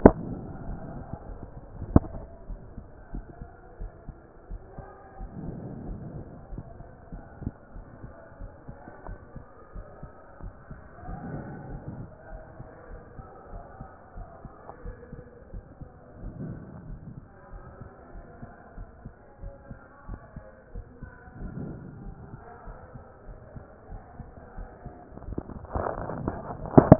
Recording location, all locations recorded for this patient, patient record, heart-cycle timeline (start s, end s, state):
pulmonary valve (PV)
aortic valve (AV)+pulmonary valve (PV)+tricuspid valve (TV)+mitral valve (MV)
#Age: nan
#Sex: Female
#Height: nan
#Weight: nan
#Pregnancy status: True
#Murmur: Absent
#Murmur locations: nan
#Most audible location: nan
#Systolic murmur timing: nan
#Systolic murmur shape: nan
#Systolic murmur grading: nan
#Systolic murmur pitch: nan
#Systolic murmur quality: nan
#Diastolic murmur timing: nan
#Diastolic murmur shape: nan
#Diastolic murmur grading: nan
#Diastolic murmur pitch: nan
#Diastolic murmur quality: nan
#Outcome: Abnormal
#Campaign: 2014 screening campaign
0.00	2.29	unannotated
2.29	2.48	diastole
2.48	2.60	S1
2.60	2.76	systole
2.76	2.86	S2
2.86	3.12	diastole
3.12	3.24	S1
3.24	3.40	systole
3.40	3.48	S2
3.48	3.80	diastole
3.80	3.92	S1
3.92	4.06	systole
4.06	4.16	S2
4.16	4.50	diastole
4.50	4.62	S1
4.62	4.78	systole
4.78	4.86	S2
4.86	5.20	diastole
5.20	5.30	S1
5.30	5.44	systole
5.44	5.56	S2
5.56	5.86	diastole
5.86	6.00	S1
6.00	6.14	systole
6.14	6.24	S2
6.24	6.52	diastole
6.52	6.64	S1
6.64	6.78	systole
6.78	6.88	S2
6.88	7.14	diastole
7.14	7.24	S1
7.24	7.42	systole
7.42	7.54	S2
7.54	7.76	diastole
7.76	7.86	S1
7.86	8.02	systole
8.02	8.12	S2
8.12	8.40	diastole
8.40	8.50	S1
8.50	8.68	systole
8.68	8.78	S2
8.78	9.08	diastole
9.08	9.18	S1
9.18	9.36	systole
9.36	9.46	S2
9.46	9.74	diastole
9.74	9.86	S1
9.86	10.02	systole
10.02	10.12	S2
10.12	10.42	diastole
10.42	10.52	S1
10.52	10.70	systole
10.70	10.78	S2
10.78	11.08	diastole
11.08	11.20	S1
11.20	11.32	systole
11.32	11.44	S2
11.44	11.70	diastole
11.70	11.82	S1
11.82	11.98	systole
11.98	12.08	S2
12.08	12.30	diastole
12.30	12.42	S1
12.42	12.58	systole
12.58	12.68	S2
12.68	12.90	diastole
12.90	13.00	S1
13.00	13.18	systole
13.18	13.26	S2
13.26	13.52	diastole
13.52	13.62	S1
13.62	13.80	systole
13.80	13.90	S2
13.90	14.16	diastole
14.16	14.28	S1
14.28	14.42	systole
14.42	14.52	S2
14.52	14.84	diastole
14.84	14.96	S1
14.96	15.14	systole
15.14	15.24	S2
15.24	15.54	diastole
15.54	15.64	S1
15.64	15.80	systole
15.80	15.88	S2
15.88	16.22	diastole
16.22	16.34	S1
16.34	16.44	systole
16.44	16.56	S2
16.56	16.88	diastole
16.88	17.00	S1
17.00	17.12	systole
17.12	17.22	S2
17.22	17.52	diastole
17.52	17.64	S1
17.64	17.80	systole
17.80	17.90	S2
17.90	18.14	diastole
18.14	18.24	S1
18.24	18.42	systole
18.42	18.52	S2
18.52	18.76	diastole
18.76	18.88	S1
18.88	19.04	systole
19.04	19.14	S2
19.14	19.42	diastole
19.42	19.52	S1
19.52	19.68	systole
19.68	19.78	S2
19.78	20.08	diastole
20.08	20.20	S1
20.20	20.34	systole
20.34	20.44	S2
20.44	20.74	diastole
20.74	20.86	S1
20.86	21.02	systole
21.02	21.10	S2
21.10	21.40	diastole
21.40	21.52	S1
21.52	21.62	systole
21.62	21.76	S2
21.76	22.02	diastole
22.02	22.14	S1
22.14	22.30	systole
22.30	22.40	S2
22.40	22.66	diastole
22.66	22.78	S1
22.78	22.94	systole
22.94	23.04	S2
23.04	23.28	diastole
23.28	23.38	S1
23.38	23.54	systole
23.54	23.64	S2
23.64	23.90	diastole
23.90	24.02	S1
24.02	24.18	systole
24.18	24.28	S2
24.28	24.58	diastole
24.58	24.68	S1
24.68	24.84	systole
24.84	24.94	S2
24.94	25.24	diastole
25.24	26.99	unannotated